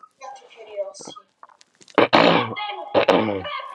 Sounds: Throat clearing